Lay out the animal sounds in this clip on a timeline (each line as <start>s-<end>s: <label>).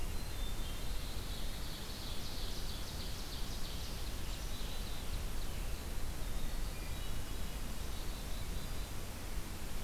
0.0s-0.9s: Hermit Thrush (Catharus guttatus)
0.8s-5.6s: Ovenbird (Seiurus aurocapilla)
4.4s-5.1s: Black-capped Chickadee (Poecile atricapillus)
5.5s-7.7s: Winter Wren (Troglodytes hiemalis)
6.6s-7.5s: Wood Thrush (Hylocichla mustelina)
7.5s-9.0s: Black-capped Chickadee (Poecile atricapillus)